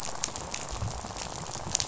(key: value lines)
label: biophony, rattle
recorder: SoundTrap 500